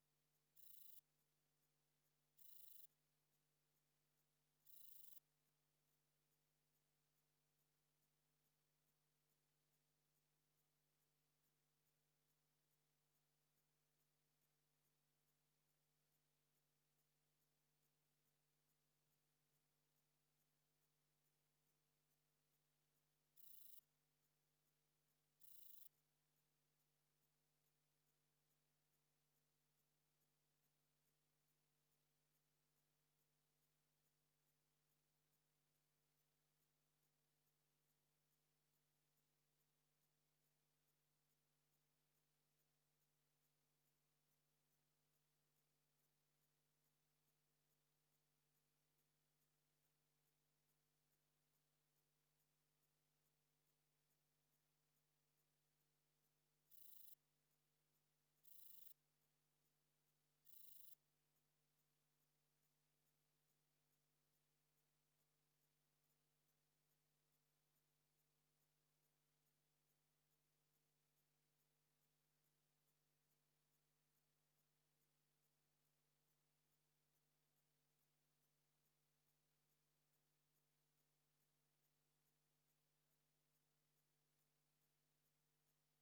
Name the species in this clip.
Rhacocleis annulata